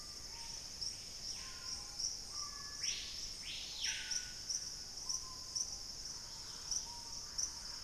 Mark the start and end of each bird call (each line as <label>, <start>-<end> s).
Black-faced Antthrush (Formicarius analis), 0.0-1.2 s
Hauxwell's Thrush (Turdus hauxwelli), 0.0-5.3 s
Screaming Piha (Lipaugus vociferans), 0.0-7.8 s
Thrush-like Wren (Campylorhynchus turdinus), 5.9-7.8 s
Dusky-capped Greenlet (Pachysylvia hypoxantha), 6.0-7.8 s